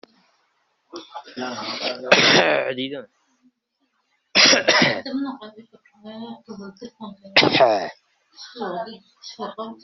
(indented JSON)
{
  "expert_labels": [
    {
      "quality": "ok",
      "cough_type": "unknown",
      "dyspnea": false,
      "wheezing": false,
      "stridor": false,
      "choking": false,
      "congestion": false,
      "nothing": true,
      "diagnosis": "healthy cough",
      "severity": "pseudocough/healthy cough"
    }
  ],
  "gender": "female",
  "respiratory_condition": false,
  "fever_muscle_pain": false,
  "status": "COVID-19"
}